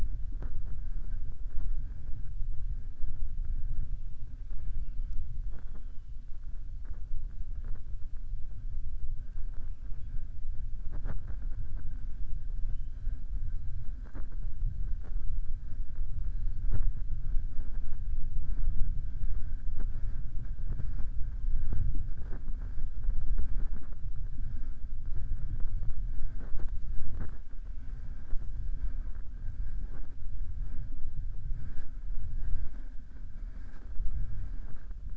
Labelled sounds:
12.6	13.1	killer whale, southern resident, 2.0 to 4.1 kHz

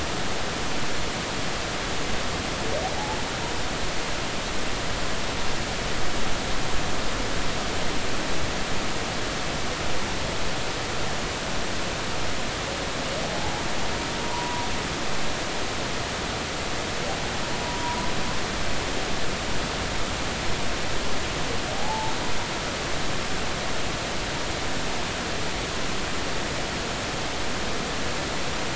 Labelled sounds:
13.2	13.5	humpback whale, 0.80 to 0.99 kHz
14.2	14.7	humpback whale, 0.90 to 1.0 kHz
17.6	18.1	humpback whale, 0.90 to 1.0 kHz
21.7	22.1	humpback whale, 0.80 to 0.93 kHz

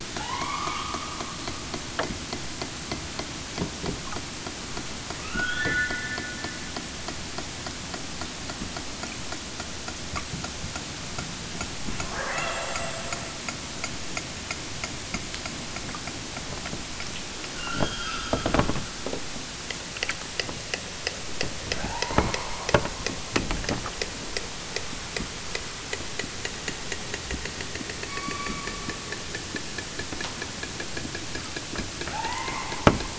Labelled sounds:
0.2	1.5	killer whale, southern Alaska resident, 0.46 to 3.6 kHz
5.1	5.9	killer whale, southern Alaska resident, 0.64 to 4.0 kHz
12.1	13.4	killer whale, southern Alaska resident, 0.32 to 7.8 kHz
17.5	18.6	killer whale, southern Alaska resident, 0.88 to 5.4 kHz
21.6	22.6	killer whale, southern Alaska resident, 0.32 to 4.7 kHz
28.0	29.3	killer whale, southern Alaska resident, 0.78 to 5.0 kHz
32.0	33.1	killer whale, southern Alaska resident, 0.32 to 3.3 kHz

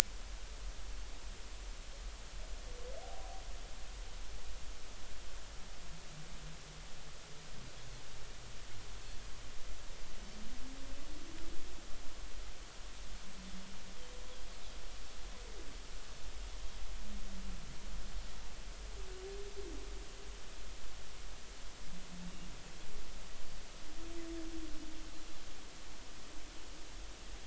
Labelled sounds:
4.0	4.4	humpback whale, 0.80 to 0.83 kHz

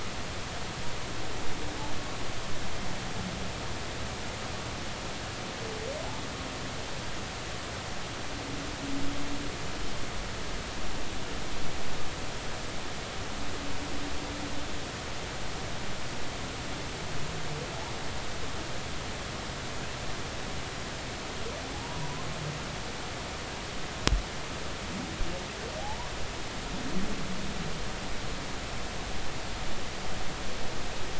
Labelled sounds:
21.7	22.1	humpback whale, 0.80 to 1.0 kHz
25.8	26.1	humpback whale, 0.80 to 1.1 kHz

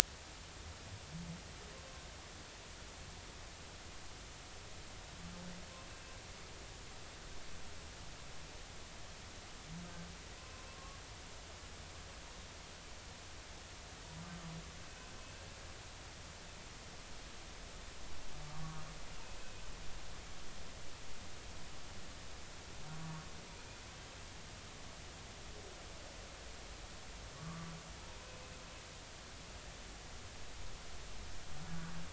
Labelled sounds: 10.7	11.0	humpback whale, 1.0 to 1.2 kHz
18.5	18.8	humpback whale, 1.1 to 1.2 kHz
27.4	27.7	humpback whale, 1.1 to 1.2 kHz

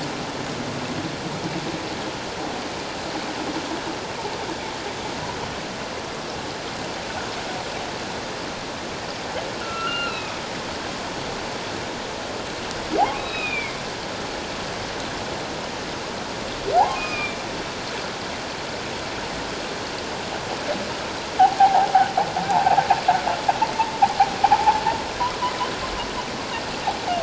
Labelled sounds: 9.6	10.4	humpback whale, 1.2 to 4.2 kHz
13.0	13.8	humpback whale, 0.78 to 3.9 kHz
16.9	17.4	humpback whale, 1.2 to 2.6 kHz
21.6	21.9	humpback whale, 0.78 to 1.0 kHz
22.5	22.8	humpback whale, 0.78 to 1.0 kHz

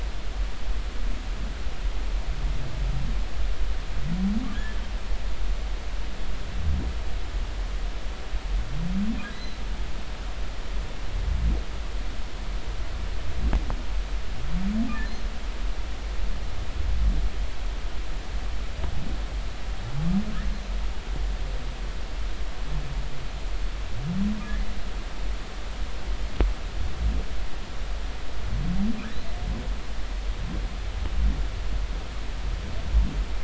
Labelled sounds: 4.5	4.8	humpback whale, 1.6 to 1.8 kHz
9.3	9.6	humpback whale, 3.8 to 4.1 kHz

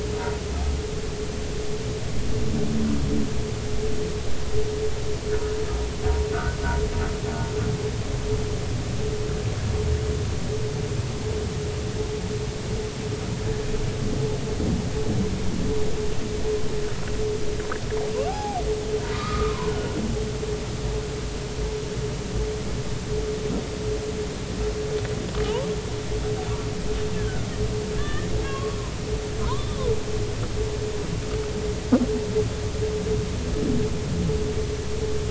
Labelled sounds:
5.3	5.6	humpback whale, 1.3 to 1.5 kHz
6.3	6.6	humpback whale, 1.2 to 1.6 kHz
18.3	18.6	humpback whale, 0.80 to 0.90 kHz
19.1	19.7	humpback whale, 0.90 to 1.3 kHz
25.4	25.7	humpback whale, 0.80 to 1.2 kHz
27.2	27.5	humpback whale, 1.4 to 1.8 kHz
28.0	28.8	humpback whale, 1.0 to 3.1 kHz
29.4	29.8	humpback whale, 0.90 to 3.7 kHz

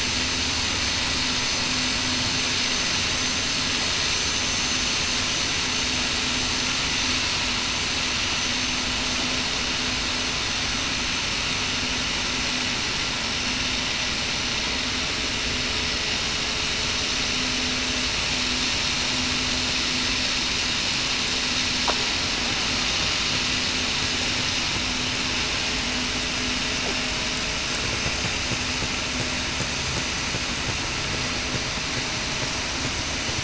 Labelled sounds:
4.5	4.8	vessel noise, 6.16 to 6.19 kHz
8.4	8.7	vessel noise, 6.1 to 6.3 kHz
14.2	14.6	vessel noise, 6.00 to 6.05 kHz

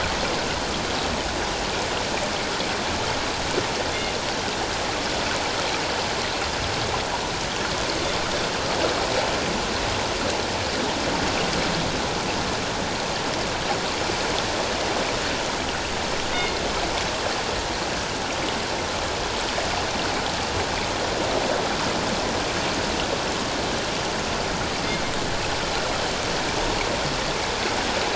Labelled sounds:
16.3	16.6	killer whale, northern resident, G clan, call N24ii, 2.0 to 2.2 kHz

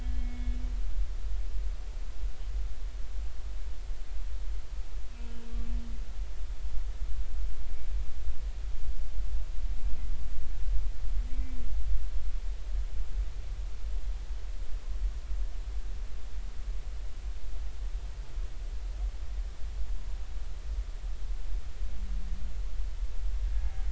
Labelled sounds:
0.0	0.6	humpback whale, 2.1 to 3.5 kHz
11.3	11.6	humpback whale, 2.2 to 2.4 kHz

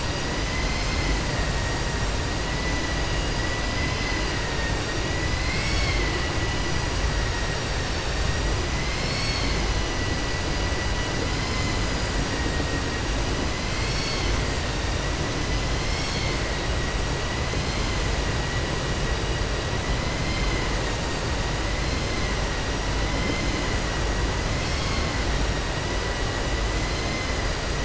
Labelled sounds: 3.7	4.3	vessel noise, 1.6 to 5.1 kHz
5.3	6.2	vessel noise, 1.1 to 5.6 kHz
20.2	20.7	vessel noise, 1.2 to 5.1 kHz

